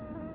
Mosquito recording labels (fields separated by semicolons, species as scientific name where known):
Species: Culex tarsalis; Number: one; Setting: insect culture